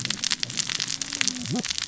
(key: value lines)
label: biophony, cascading saw
recorder: SoundTrap 600 or HydroMoth